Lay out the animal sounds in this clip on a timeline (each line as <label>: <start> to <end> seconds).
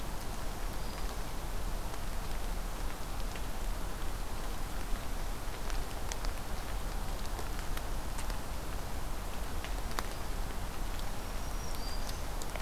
Black-throated Green Warbler (Setophaga virens): 0.2 to 1.3 seconds
Black-throated Green Warbler (Setophaga virens): 11.1 to 12.2 seconds